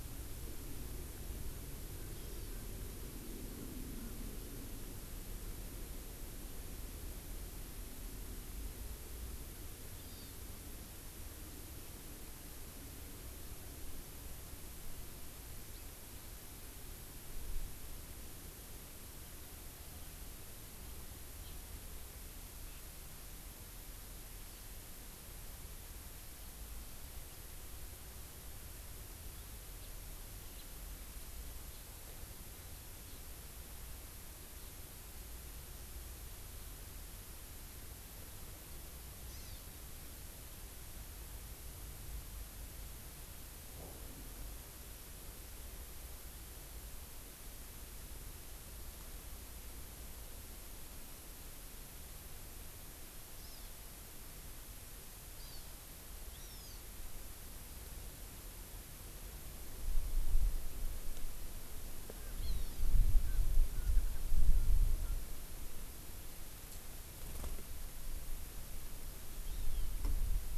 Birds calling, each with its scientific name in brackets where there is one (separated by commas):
House Finch (Haemorhous mexicanus), Hawaii Amakihi (Chlorodrepanis virens)